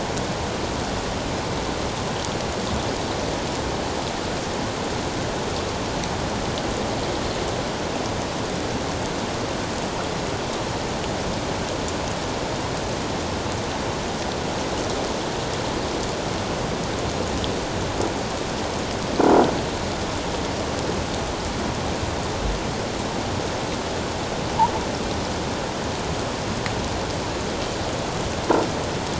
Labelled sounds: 19.2	19.4	humpback whale, 1.3 to 1.4 kHz

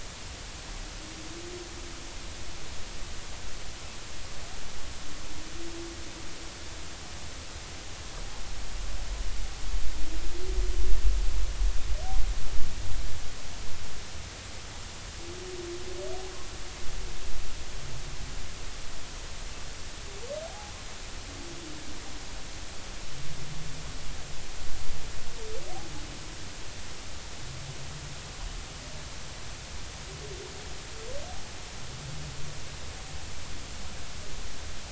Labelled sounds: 20.4	20.7	humpback whale, 0.80 to 0.93 kHz

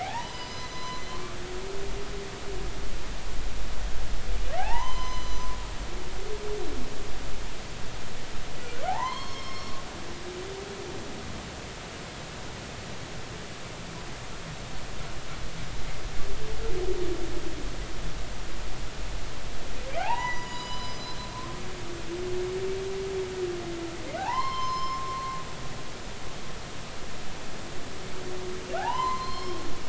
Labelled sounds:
0.0	1.0	humpback whale, 0.80 to 6.1 kHz
4.6	6.1	humpback whale, 0.80 to 6.2 kHz
8.9	9.7	humpback whale, 0.80 to 6.5 kHz
19.9	21.2	humpback whale, 0.80 to 7.0 kHz
24.2	25.4	humpback whale, 0.80 to 5.3 kHz
28.8	29.6	humpback whale, 0.80 to 5.4 kHz

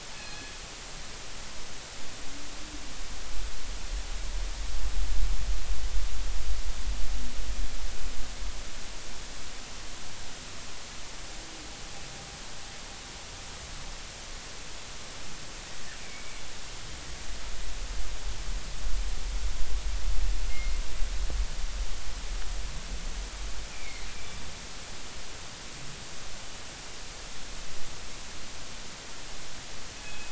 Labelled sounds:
0.1	0.5	killer whale, northern resident, G clan, call N24ii, 1.6 to 4.3 kHz
16.0	16.4	killer whale, northern resident, G clan, GG subclan, call N23ii, 2.1 to 2.5 kHz
20.5	20.7	killer whale, northern resident, G clan, call N24ii, 2.1 to 2.2 kHz
23.7	24.1	killer whale, northern resident, G clan, GG subclan, call N23ii, 2.0 to 2.5 kHz
30.0	30.3	killer whale, northern resident, G clan, call N24ii, 2.5 to 2.6 kHz

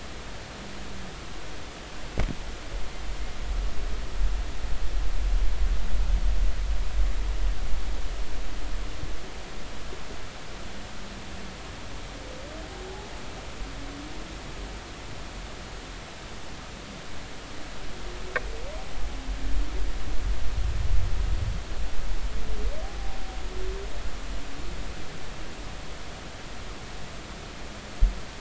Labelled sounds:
22.8	23.2	humpback whale, 0.80 to 0.99 kHz

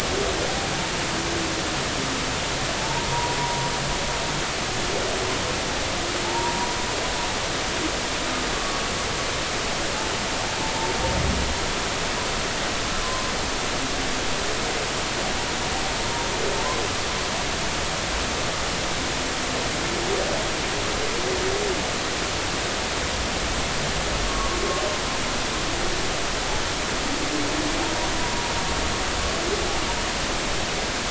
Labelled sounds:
2.8	3.4	humpback whale, 0.83 to 1.0 kHz
6.2	6.7	humpback whale, 0.83 to 1.0 kHz
8.5	8.8	humpback whale, 1.1 to 1.2 kHz
13.0	13.3	humpback whale, 0.99 to 1.2 kHz
24.3	24.6	humpback whale, 0.96 to 1.2 kHz

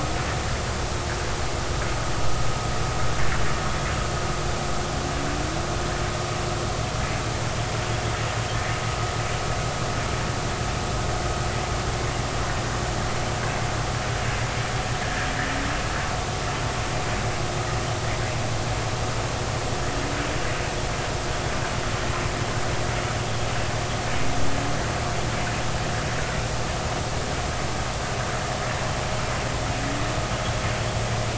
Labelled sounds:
15.0	15.3	vessel noise, 1.6 to 1.8 kHz

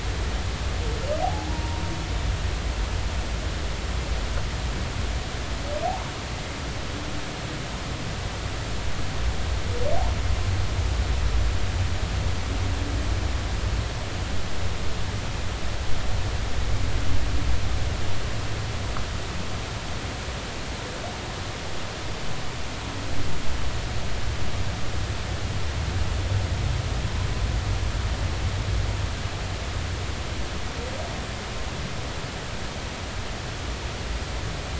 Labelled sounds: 1.2	1.8	humpback whale, 0.80 to 1.0 kHz

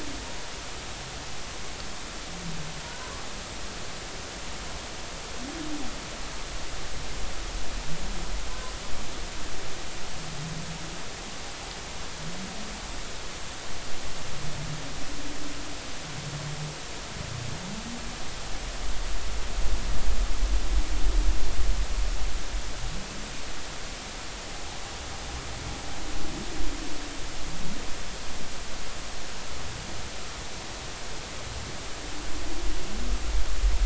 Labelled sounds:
2.8	3.1	humpback whale, 0.90 to 1.1 kHz

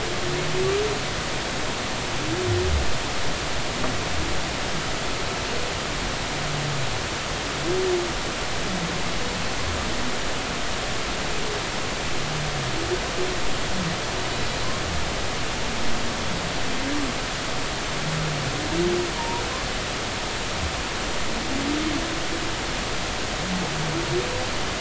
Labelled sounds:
19.1	19.4	humpback whale, 0.86 to 0.99 kHz

